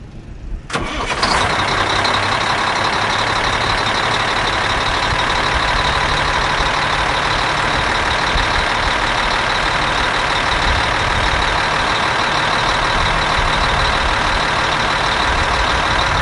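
0.6s Brief mechanical starter motor noise with a sharp initiating sound. 1.5s
1.5s Loud, rhythmic engine noise with a smooth and consistent pattern. 16.2s

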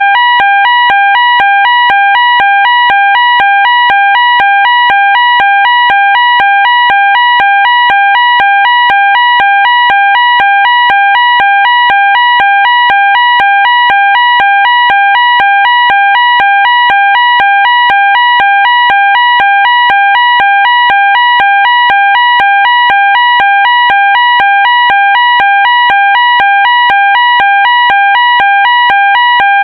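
0.1s A constant synthetic fire alarm siren sounds. 29.6s

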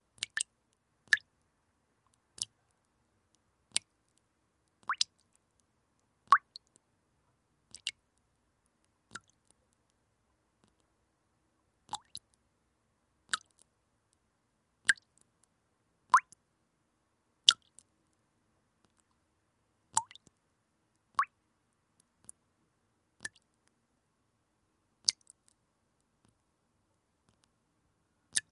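0.2s Water drops fall and hit a surface with sharp, clean plinks in a slow, rhythmic pattern. 1.2s
2.4s Water droplets falling with a short, high-pitched sound and slight echo, creating a slow, rhythmic pattern. 2.5s
3.8s Water droplets falling with a short, high-pitched sound and slight echo, creating a slow, rhythmic pattern. 3.8s
4.9s Water droplets falling with a short, high-pitched sound and slight echo, creating a slow, rhythmic pattern. 5.0s
6.3s Water droplets falling with a short, high-pitched sound and slight echo, creating a slow, rhythmic pattern. 6.4s
7.8s Water droplets falling with a short, high-pitched sound and slight echo, creating a slow, rhythmic pattern. 7.9s
9.2s Water droplets falling with a short, high-pitched sound and slight echo, creating a slow, rhythmic pattern. 9.2s
12.0s Water droplets falling with a short, high-pitched sound and slight echo, creating a slow, rhythmic pattern. 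12.2s
13.4s Water droplets falling with a short, high-pitched sound and slight echo, creating a slow, rhythmic pattern. 13.4s
14.9s Water droplets falling with a short, high-pitched sound and slight echo, creating a slow, rhythmic pattern. 15.0s
16.2s Water droplets falling with a short, high-pitched sound and slight echo, creating a slow, rhythmic pattern. 16.2s
17.5s Water droplets falling with a short, high-pitched sound and slight echo, creating a slow, rhythmic pattern. 17.5s
20.0s Water droplets falling with a short, high-pitched sound and slight echo, creating a slow, rhythmic pattern. 20.0s
21.2s Water droplets falling with a short, high-pitched sound and slight echo, creating a slow, rhythmic pattern. 21.3s
23.3s Water droplets falling with a short, high-pitched sound and slight echo, creating a slow, rhythmic pattern. 23.3s
25.1s Water droplets falling with a short, high-pitched sound and slight echo, creating a slow, rhythmic pattern. 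25.1s
28.4s Water droplets falling with a short, high-pitched sound and slight echo, creating a slow, rhythmic pattern. 28.4s

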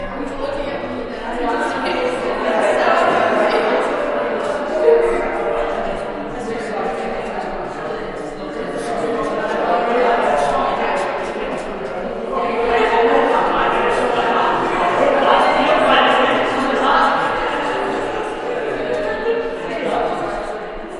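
0.1s The chatter of a crowd swells and echoes, with voices blending into a reverberating, murmuring hum. 21.0s

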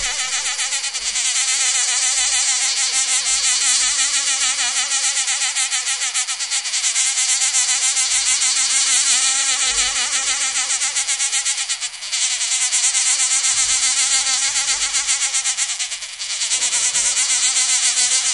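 0.0s An insect's wings flutter repeatedly. 18.3s

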